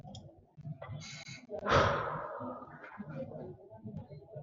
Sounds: Sigh